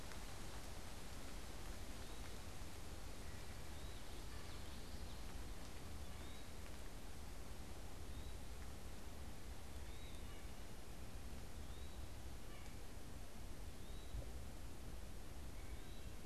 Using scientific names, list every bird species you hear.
Contopus virens, Geothlypis trichas, Sitta carolinensis